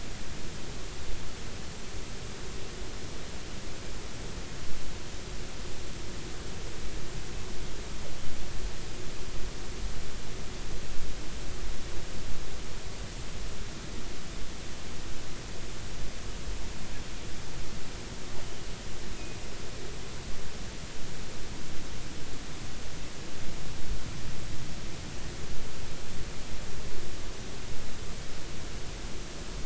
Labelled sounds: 19.2	19.5	killer whale, offshore, 2.4 to 2.6 kHz

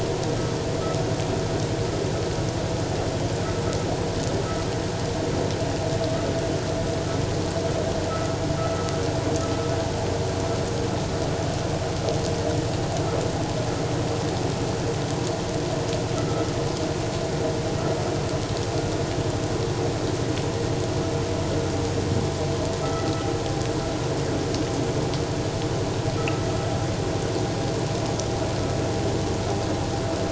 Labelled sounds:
8.1	8.4	vessel noise, 1.2 to 1.5 kHz
16.2	16.5	vessel noise, 1.2 to 1.4 kHz
26.2	26.4	vessel noise, 1.2 to 1.4 kHz

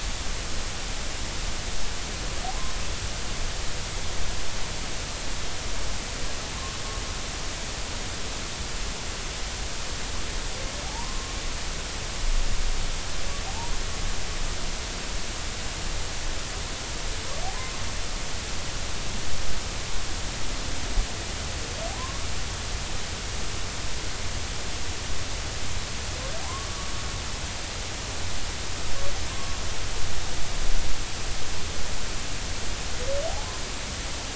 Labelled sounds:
10.8	11.3	humpback whale, 0.80 to 1.2 kHz
13.5	13.7	humpback whale, 0.80 to 0.99 kHz
17.6	17.8	humpback whale, 0.96 to 1.2 kHz
26.4	26.7	humpback whale, 0.80 to 1.2 kHz
33.3	33.5	humpback whale, 0.80 to 0.90 kHz

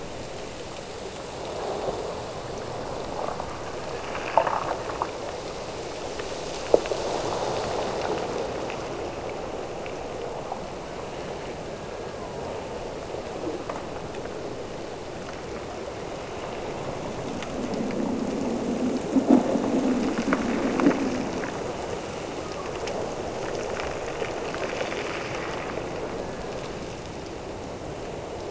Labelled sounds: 11.1	12.9	killer whale, Bigg's (transient), Gulf of Alaska transient, 0.79 to 1.8 kHz
22.1	23.2	killer whale, Bigg's (transient), Gulf of Alaska transient, 0.73 to 1.4 kHz
26.0	27.1	killer whale, Bigg's (transient), Gulf of Alaska transient, 1.4 to 1.9 kHz

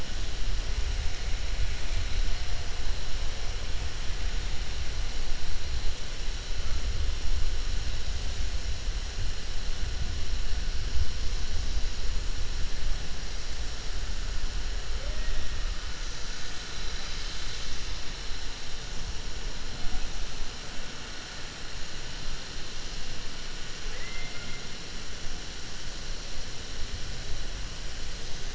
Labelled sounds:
23.8	24.6	killer whale, 0.71 to 2.8 kHz

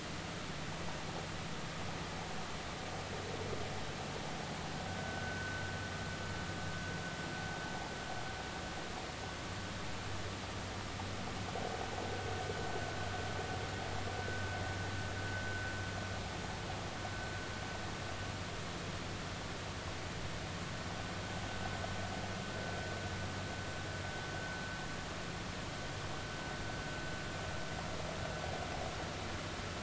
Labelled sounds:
4.9	5.7	vessel noise, 1.4 to 1.6 kHz

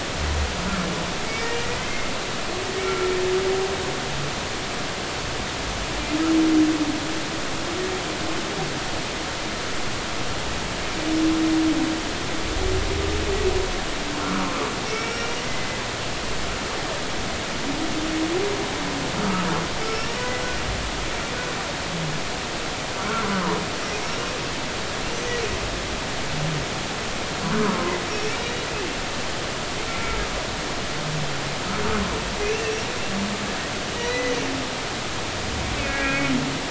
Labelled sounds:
1.8	2.1	humpback whale, 2.0 to 2.2 kHz
2.8	3.1	humpback whale, 1.3 to 1.4 kHz
14.2	15.7	humpback whale, 0.99 to 5.6 kHz
19.8	20.4	humpback whale, 2.0 to 5.7 kHz
23.0	23.3	humpback whale, 1.2 to 1.6 kHz
25.1	25.4	humpback whale, 5.7 to 5.9 kHz
27.5	28.0	humpback whale, 0.93 to 1.6 kHz
28.3	28.7	humpback whale, 3.7 to 3.9 kHz
29.9	30.2	humpback whale, 1.3 to 2.3 kHz
32.5	32.8	humpback whale, 2.6 to 2.8 kHz
34.0	34.4	humpback whale, 1.9 to 6.0 kHz
35.8	36.2	humpback whale, 1.6 to 2.6 kHz

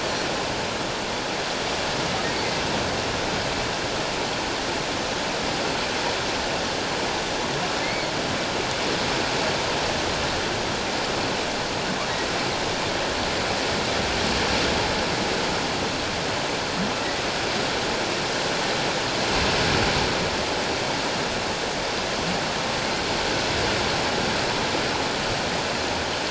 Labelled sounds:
2.3	2.6	humpback whale, 2.0 to 2.2 kHz
7.8	8.1	humpback whale, 2.0 to 2.3 kHz

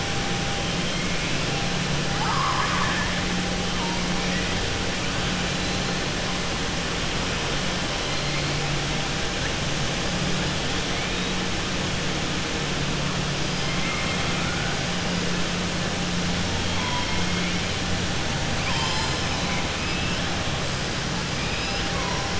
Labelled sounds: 2.1	3.1	killer whale, southern resident, 0.83 to 2.1 kHz
13.7	14.7	killer whale, southern resident, 1.1 to 2.7 kHz
19.8	20.2	killer whale, southern resident, 1.7 to 3.2 kHz
21.4	21.8	killer whale, southern resident, 2.3 to 3.0 kHz

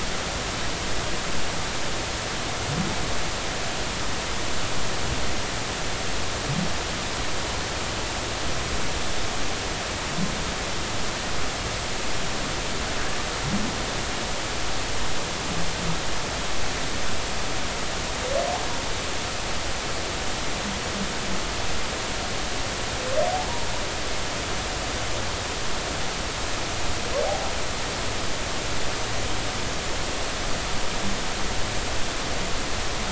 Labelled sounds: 27.3	27.5	humpback whale, 0.80 to 0.86 kHz

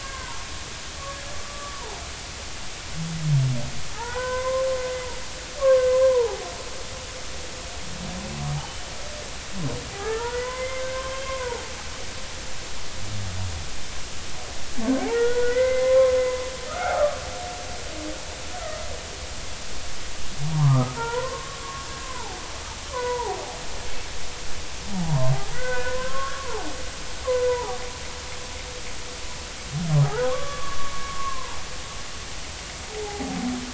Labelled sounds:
0.1	0.4	humpback whale, 0.83 to 1.1 kHz
1.4	1.8	humpback whale, 1.1 to 1.2 kHz
3.9	4.7	humpback whale, 0.80 to 2.1 kHz
5.6	5.9	humpback whale, 0.99 to 1.2 kHz
6.9	7.5	humpback whale, 0.80 to 1.1 kHz
8.6	8.8	humpback whale, 2.8 to 3.2 kHz
9.9	11.6	humpback whale, 0.80 to 2.2 kHz
15.0	17.2	humpback whale, 0.80 to 3.5 kHz
20.5	22.4	humpback whale, 0.80 to 1.6 kHz
22.9	23.4	humpback whale, 0.80 to 2.1 kHz
25.1	26.5	humpback whale, 0.80 to 2.6 kHz
27.5	27.8	humpback whale, 0.80 to 1.0 kHz
30.2	31.6	humpback whale, 0.80 to 3.4 kHz

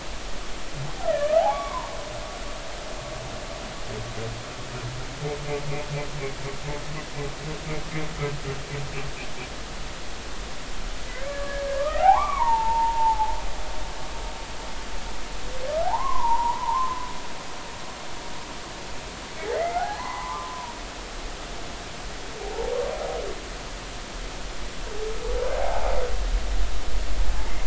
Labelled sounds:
1.1	1.9	humpback whale, 0.80 to 2.3 kHz
11.1	13.3	humpback whale, 0.80 to 2.5 kHz
15.8	17.1	humpback whale, 0.80 to 1.2 kHz
19.5	20.7	humpback whale, 0.80 to 2.2 kHz
25.6	25.9	humpback whale, 0.80 to 0.93 kHz

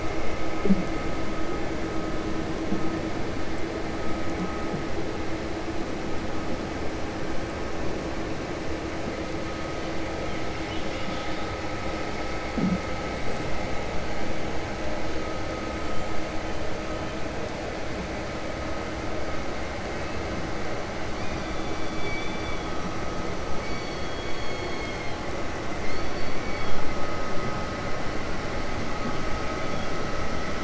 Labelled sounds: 10.6	11.5	killer whale, 2.3 to 4.8 kHz

